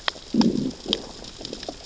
{"label": "biophony, growl", "recorder": "SoundTrap 600 or HydroMoth"}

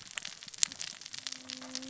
{"label": "biophony, cascading saw", "recorder": "SoundTrap 600 or HydroMoth"}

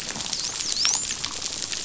{"label": "biophony, dolphin", "recorder": "SoundTrap 500"}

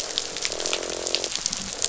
{"label": "biophony, croak", "recorder": "SoundTrap 500"}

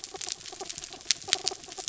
{"label": "anthrophony, mechanical", "recorder": "SoundTrap 300"}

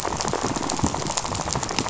{"label": "biophony, rattle", "recorder": "SoundTrap 500"}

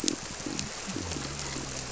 {"label": "biophony", "recorder": "SoundTrap 300"}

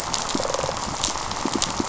{"label": "biophony, rattle response", "recorder": "SoundTrap 500"}
{"label": "biophony, pulse", "recorder": "SoundTrap 500"}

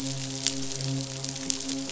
{"label": "biophony, midshipman", "recorder": "SoundTrap 500"}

